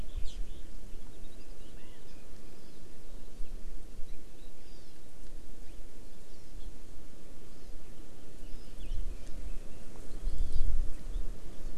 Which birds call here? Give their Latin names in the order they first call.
Chlorodrepanis virens